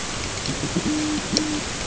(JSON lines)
{"label": "ambient", "recorder": "HydroMoth"}